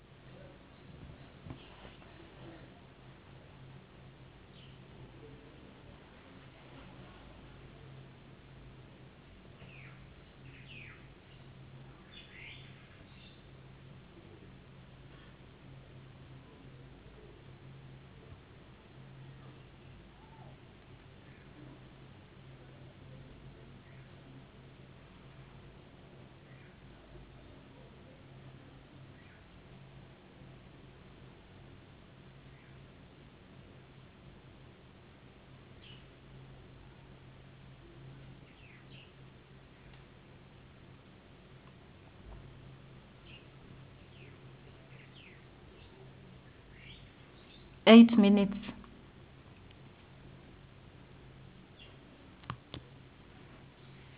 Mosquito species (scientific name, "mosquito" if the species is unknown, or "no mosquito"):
no mosquito